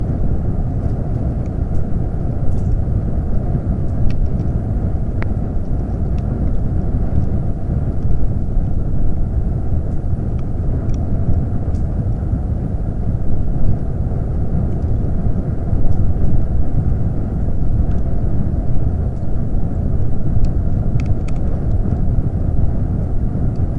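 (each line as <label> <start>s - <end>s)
An air intake for a fireplace is operating. 0.0s - 23.8s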